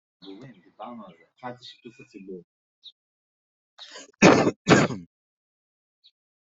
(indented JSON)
{
  "expert_labels": [
    {
      "quality": "ok",
      "cough_type": "unknown",
      "dyspnea": false,
      "wheezing": false,
      "stridor": false,
      "choking": false,
      "congestion": false,
      "nothing": true,
      "diagnosis": "COVID-19",
      "severity": "mild"
    }
  ],
  "age": 33,
  "gender": "male",
  "respiratory_condition": false,
  "fever_muscle_pain": false,
  "status": "healthy"
}